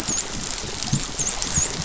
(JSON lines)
{"label": "biophony, dolphin", "recorder": "SoundTrap 500"}